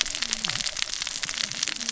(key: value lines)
label: biophony, cascading saw
recorder: SoundTrap 600 or HydroMoth